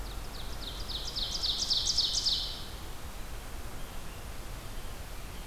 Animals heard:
Ovenbird (Seiurus aurocapilla)

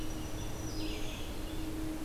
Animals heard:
Red-eyed Vireo (Vireo olivaceus), Black-throated Green Warbler (Setophaga virens)

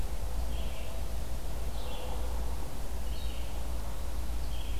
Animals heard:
Red-eyed Vireo (Vireo olivaceus)

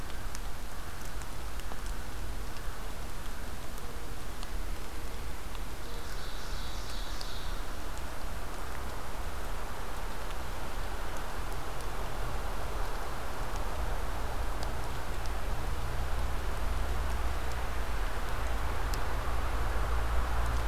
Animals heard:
American Crow (Corvus brachyrhynchos), Ovenbird (Seiurus aurocapilla)

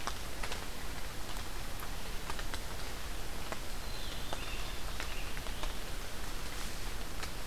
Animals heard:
Black-capped Chickadee (Poecile atricapillus), American Robin (Turdus migratorius)

